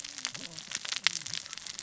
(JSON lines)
{"label": "biophony, cascading saw", "recorder": "SoundTrap 600 or HydroMoth"}